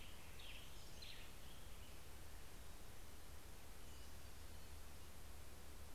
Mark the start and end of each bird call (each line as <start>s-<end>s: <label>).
0.0s-2.8s: Western Tanager (Piranga ludoviciana)